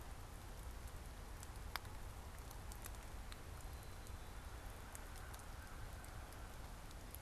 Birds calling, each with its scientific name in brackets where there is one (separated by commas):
Black-capped Chickadee (Poecile atricapillus), American Crow (Corvus brachyrhynchos)